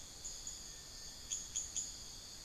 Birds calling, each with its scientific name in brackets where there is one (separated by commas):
unidentified bird, Bartlett's Tinamou (Crypturellus bartletti)